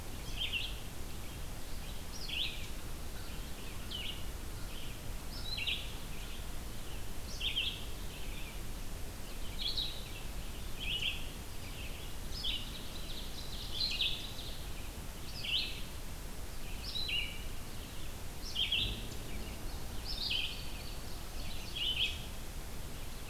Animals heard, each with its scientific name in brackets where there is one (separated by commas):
Ovenbird (Seiurus aurocapilla), Red-eyed Vireo (Vireo olivaceus), Indigo Bunting (Passerina cyanea)